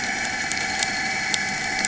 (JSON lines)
{"label": "anthrophony, boat engine", "recorder": "HydroMoth"}